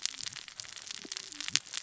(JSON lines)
{"label": "biophony, cascading saw", "recorder": "SoundTrap 600 or HydroMoth"}